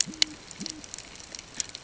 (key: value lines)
label: ambient
recorder: HydroMoth